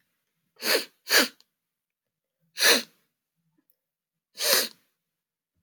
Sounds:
Sniff